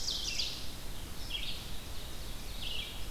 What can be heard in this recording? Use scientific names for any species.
Seiurus aurocapilla, Vireo olivaceus